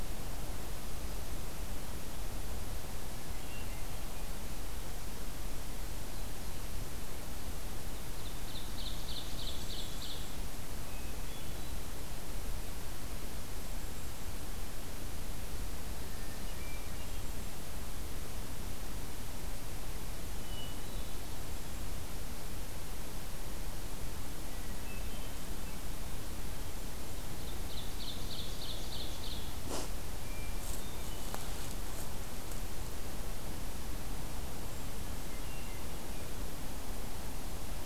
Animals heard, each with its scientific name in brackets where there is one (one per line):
Hermit Thrush (Catharus guttatus)
Ovenbird (Seiurus aurocapilla)
Golden-crowned Kinglet (Regulus satrapa)